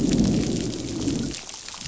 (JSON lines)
{"label": "biophony, growl", "recorder": "SoundTrap 500"}